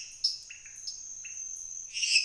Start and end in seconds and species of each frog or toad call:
0.2	1.0	Dendropsophus nanus
0.5	2.2	Leptodactylus podicipinus
9:15pm

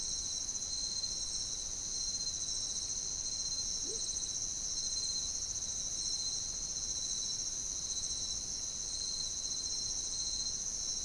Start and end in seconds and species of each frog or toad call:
3.8	4.1	Leptodactylus latrans
2:15am

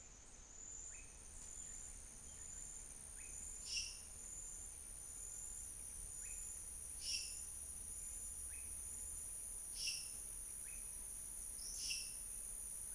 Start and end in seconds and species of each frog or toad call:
0.9	1.2	Leptodactylus podicipinus
3.1	3.5	Leptodactylus podicipinus
6.1	6.5	Leptodactylus podicipinus
8.6	8.8	Leptodactylus podicipinus
10.6	10.9	Leptodactylus podicipinus
5:45pm

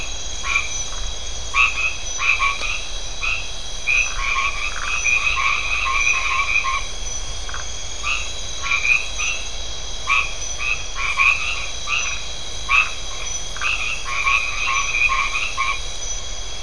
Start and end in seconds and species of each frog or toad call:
0.0	15.7	Boana albomarginata
7.5	7.7	Phyllomedusa distincta
13.5	13.9	Phyllomedusa distincta
10:30pm

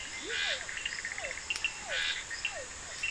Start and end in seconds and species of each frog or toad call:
0.0	0.6	Leptodactylus latrans
0.0	1.7	Boana bischoffi
0.0	2.3	Scinax perereca
0.0	3.1	Physalaemus cuvieri
0.0	3.1	Sphaenorhynchus surdus
10:30pm

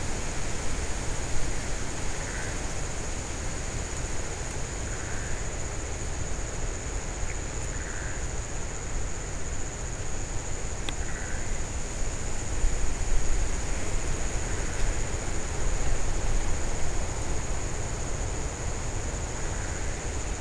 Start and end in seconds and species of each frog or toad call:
1.8	2.8	Pithecopus azureus
5.0	5.7	Pithecopus azureus
7.6	8.3	Pithecopus azureus
10.9	12.1	Pithecopus azureus
14.4	15.2	Pithecopus azureus
19.3	20.4	Pithecopus azureus
3:30am

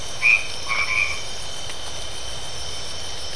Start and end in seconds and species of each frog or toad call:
0.0	1.4	Boana albomarginata
10:30pm

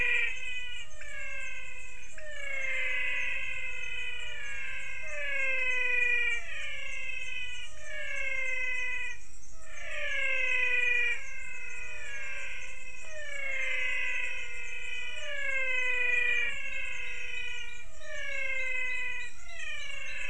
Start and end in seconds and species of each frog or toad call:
0.0	20.2	Physalaemus albonotatus
0.6	20.2	Leptodactylus podicipinus
6:00pm

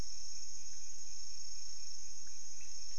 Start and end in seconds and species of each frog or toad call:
none
1:15am

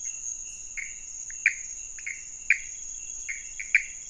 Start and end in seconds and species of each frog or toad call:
0.0	4.0	Pithecopus azureus
1.3	1.4	Leptodactylus podicipinus
1:30am

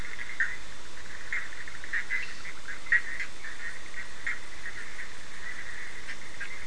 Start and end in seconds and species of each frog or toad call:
0.0	6.6	Boana bischoffi
2.0	2.6	Sphaenorhynchus surdus
9:30pm

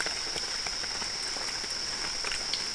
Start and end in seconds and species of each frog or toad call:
none
2:30am

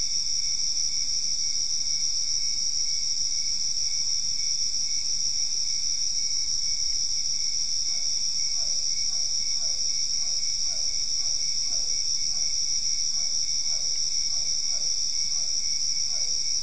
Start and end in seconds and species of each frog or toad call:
7.8	16.6	Physalaemus cuvieri
9:00pm

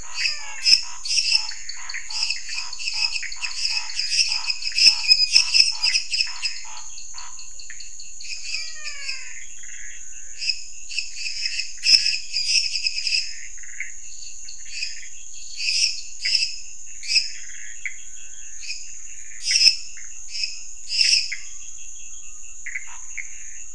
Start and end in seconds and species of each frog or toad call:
0.0	0.9	Physalaemus albonotatus
0.0	6.7	Dendropsophus minutus
0.0	7.5	Scinax fuscovarius
0.0	9.4	Dendropsophus nanus
0.0	23.7	Pithecopus azureus
8.4	9.4	Physalaemus albonotatus
10.4	23.7	Dendropsophus minutus
22.8	23.7	Scinax fuscovarius
11:15pm

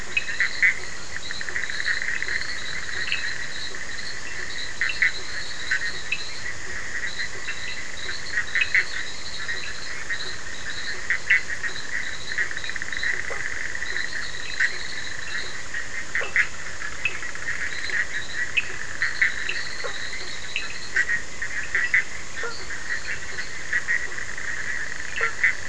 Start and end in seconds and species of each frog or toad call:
0.0	15.8	Boana leptolineata
0.0	25.6	Sphaenorhynchus surdus
17.7	21.0	Boana leptolineata
22.3	23.7	Boana leptolineata
24.6	25.6	Elachistocleis bicolor
11:30pm

